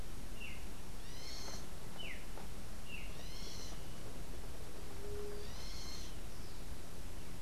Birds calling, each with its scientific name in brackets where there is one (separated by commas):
unidentified bird, Streaked Saltator (Saltator striatipectus), White-tipped Dove (Leptotila verreauxi)